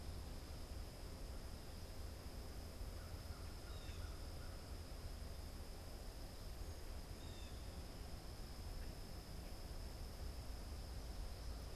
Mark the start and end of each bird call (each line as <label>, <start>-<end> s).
American Crow (Corvus brachyrhynchos), 2.6-4.6 s
Blue Jay (Cyanocitta cristata), 7.0-11.8 s